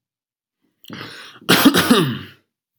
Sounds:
Cough